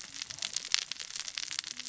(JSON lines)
{"label": "biophony, cascading saw", "recorder": "SoundTrap 600 or HydroMoth"}